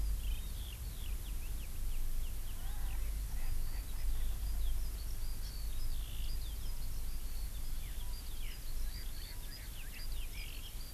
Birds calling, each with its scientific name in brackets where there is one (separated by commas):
Eurasian Skylark (Alauda arvensis), Erckel's Francolin (Pternistis erckelii)